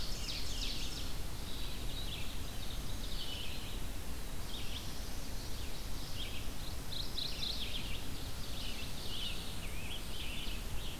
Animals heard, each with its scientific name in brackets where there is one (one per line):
Red-eyed Vireo (Vireo olivaceus)
Black-throated Blue Warbler (Setophaga caerulescens)
Ovenbird (Seiurus aurocapilla)
Hermit Thrush (Catharus guttatus)
Scarlet Tanager (Piranga olivacea)
Mourning Warbler (Geothlypis philadelphia)